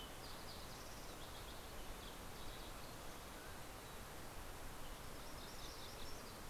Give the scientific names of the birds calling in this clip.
Pipilo chlorurus, Oreortyx pictus, Setophaga coronata